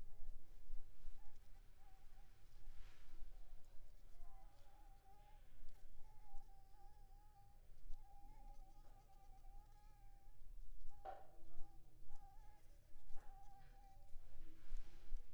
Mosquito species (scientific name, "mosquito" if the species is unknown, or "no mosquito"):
Anopheles arabiensis